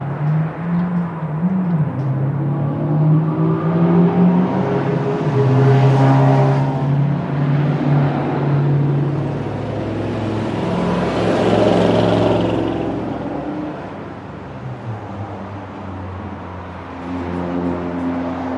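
Loud, repeated rumbling of passing traffic. 0.0 - 18.6
A liquid is quietly dripping. 0.1 - 2.6
A sharp, muffled clicking sound repeats. 17.0 - 18.3

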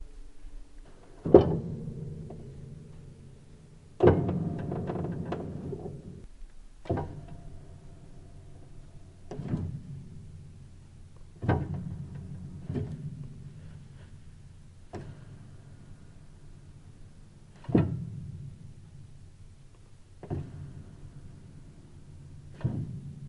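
Echoing chaotic sounds of the sustain pedal on a piano. 1.2 - 23.3

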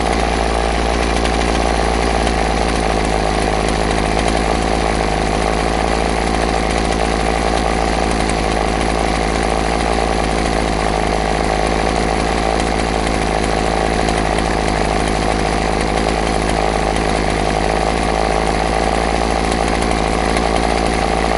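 A chainsaw runs continuously, producing a harsh, vibrating mechanical sound. 0.0 - 21.4

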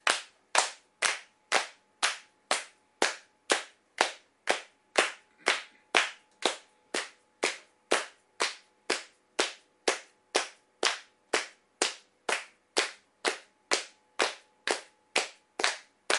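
Rhythmic clapping with several bells ringing simultaneously at intervals. 0.0 - 16.2

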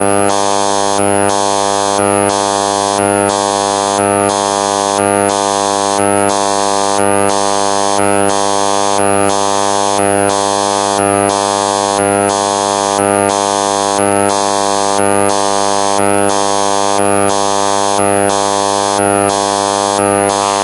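Electromagnetic signals produce repeating buzzing and static sounds. 0.0 - 20.6

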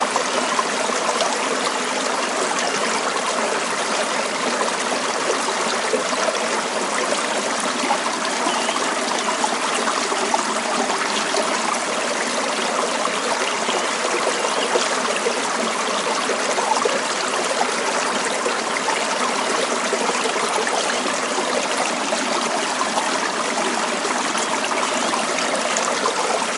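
Water flowing in a stream or river with quiet bird sounds in the background. 0.0 - 26.6

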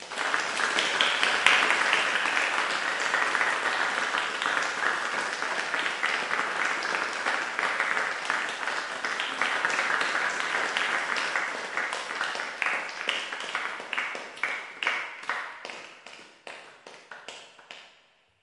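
Applause in an auditorium gradually fading. 0.0 - 18.4

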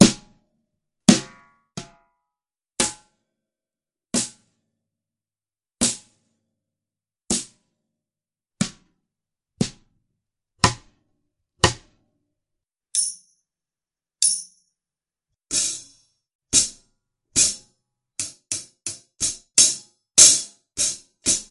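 A loud, fast snare drum is playing. 0.0 - 0.2
A loud, fast snare drum is playing. 1.0 - 1.3
A quiet, fast snare drum is ringing. 1.8 - 1.9
A loud, fast snare drum is playing. 2.7 - 3.0
A loud, fast snare drum is playing. 4.1 - 4.3
A loud, fast snare drum is playing. 5.8 - 6.0
A loud, fast snare drum is playing. 7.3 - 7.6
A loud, fast snare drum is playing. 8.5 - 8.8
A loud, dull, and fast snare drum sound. 9.5 - 9.7
A loud, dull, and fast snare drum sound. 10.6 - 10.8
A loud, dull, and fast snare drum sound. 11.6 - 11.8
Loud, fast, ringing drum percussion. 12.9 - 13.2
Loud, fast, ringing drum percussion. 14.2 - 14.5
A loud, rhythmic, and gradually increasing repetitive sound of a hi-hat drum. 15.5 - 21.5

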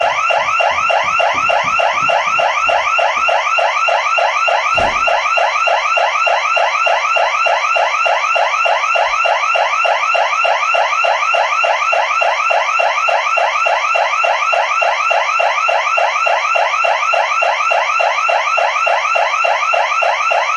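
An alarm is sounding rhythmically. 0.0 - 20.6

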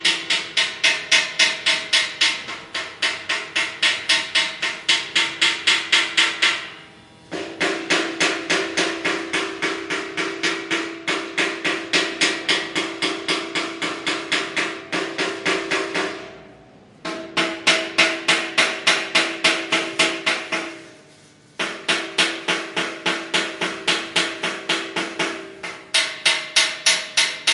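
Hammering on a metal object. 0.0 - 6.9
Hammering on a metal surface. 0.0 - 6.9
Hammering on an object consistently. 6.9 - 16.8
Consistent hammering on an object with one pause. 16.9 - 25.4
Hammering on an object producing a high-pitched sound. 25.5 - 27.5

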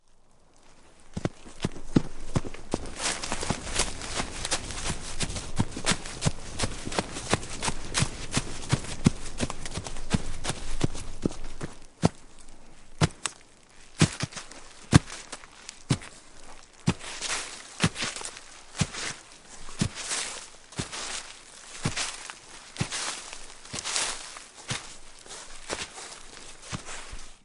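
Boots running outdoors. 1.0 - 12.3
Leaves are being crushed by boots outdoors. 4.8 - 12.1
Boots jumping on leaves outdoors. 13.0 - 27.4

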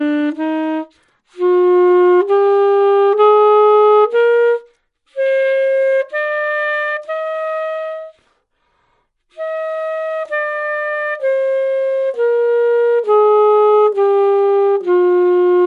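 Two trumpets play ascending notes to begin. 0.0 - 0.9
A trumpet plays successive tones ascending the musical scale. 1.4 - 4.6
A trumpet plays successive tones ascending the musical scale. 5.2 - 8.2
Trumpet playing tone by tone descending the musical scale as practice. 9.4 - 15.7

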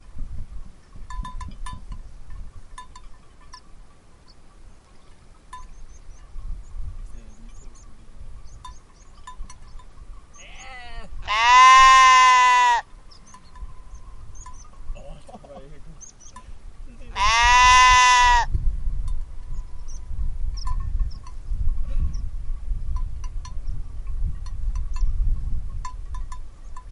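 A continuous muffled sound of rushing water in the distance. 0.0 - 26.9
Birds chirp continuously in the distance outdoors. 0.0 - 26.9
A bell jingles repeatedly with short pauses. 0.8 - 3.9
A bell jingles once and fades quietly. 5.4 - 6.1
People talking with muffled voices in nature. 6.7 - 8.9
A bell jingles repeatedly with short pauses. 9.1 - 10.3
A person imitates a sheep bleat once, muffled in the distance. 10.3 - 11.3
A sheep bleats loudly once. 11.3 - 12.9
A bell jingles twice, slightly muffled. 13.5 - 14.9
People talking muffled in nature. 15.0 - 17.0
A sheep bleats loudly once with a slight echo. 17.2 - 20.7
A bell jingles repeatedly with occasional pauses. 18.9 - 26.9
A person loudly exhales. 21.5 - 22.8

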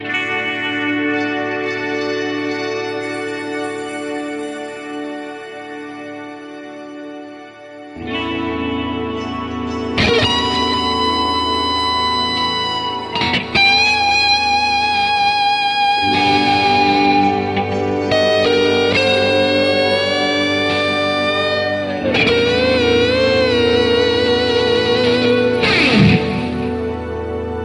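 A loud electric guitar solo is being played. 0.0 - 27.6

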